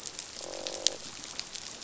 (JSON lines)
{"label": "biophony, croak", "recorder": "SoundTrap 500"}